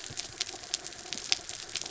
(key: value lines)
label: anthrophony, mechanical
recorder: SoundTrap 300